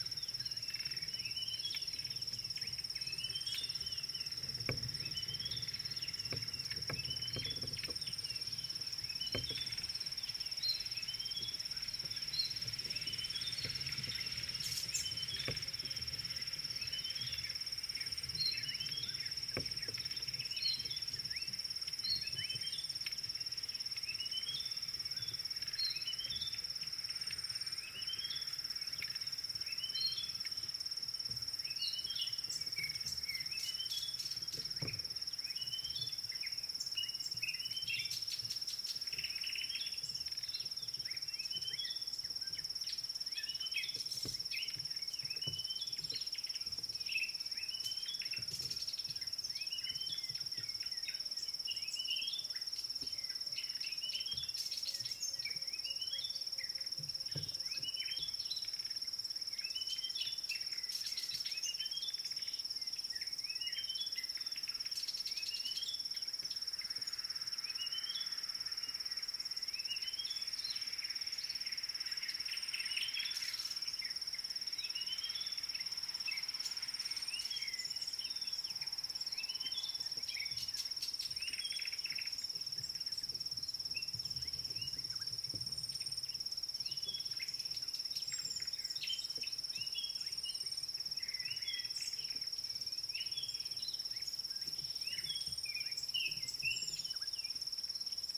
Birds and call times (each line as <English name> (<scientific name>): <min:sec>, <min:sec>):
Red-backed Scrub-Robin (Cercotrichas leucophrys): 0:03.4, 0:07.2, 0:18.9, 0:26.3, 0:37.8, 0:45.6, 0:49.9, 0:55.9, 0:59.9, 1:03.6, 1:08.0, 1:15.2, 1:19.7
Dideric Cuckoo (Chrysococcyx caprius): 0:03.9
Slate-colored Boubou (Laniarius funebris): 0:21.4